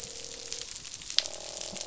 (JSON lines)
{"label": "biophony, croak", "recorder": "SoundTrap 500"}